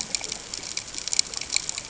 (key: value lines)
label: ambient
recorder: HydroMoth